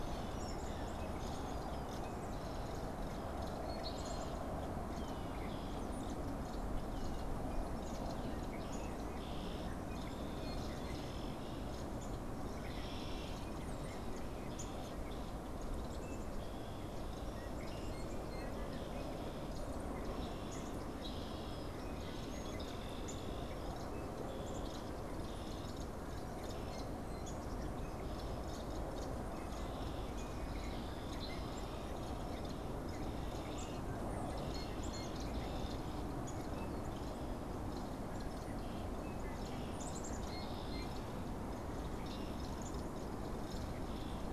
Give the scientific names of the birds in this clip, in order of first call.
unidentified bird, Cyanocitta cristata, Dryobates pubescens, Poecile atricapillus